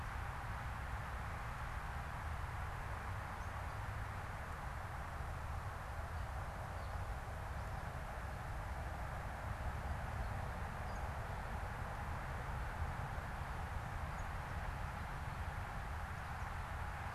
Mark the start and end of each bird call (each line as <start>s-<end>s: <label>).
10.0s-11.4s: Gray Catbird (Dumetella carolinensis)